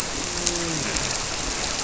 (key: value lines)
label: biophony, grouper
recorder: SoundTrap 300